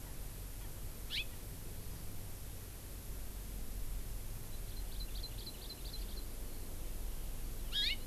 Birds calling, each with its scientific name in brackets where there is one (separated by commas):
Hawaii Amakihi (Chlorodrepanis virens)